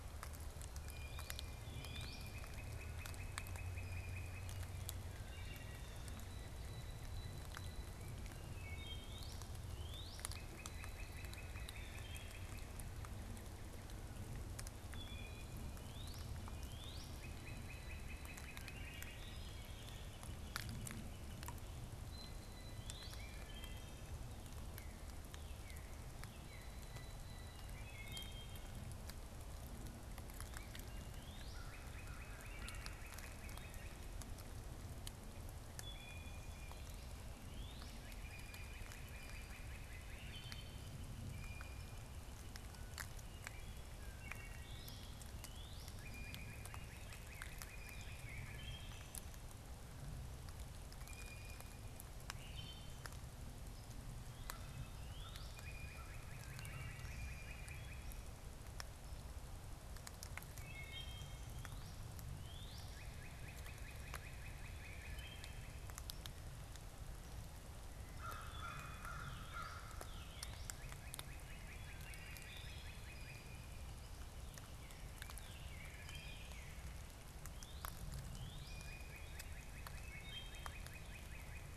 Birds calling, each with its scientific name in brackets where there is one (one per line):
Northern Cardinal (Cardinalis cardinalis)
Wood Thrush (Hylocichla mustelina)
Northern Flicker (Colaptes auratus)
Blue Jay (Cyanocitta cristata)
American Crow (Corvus brachyrhynchos)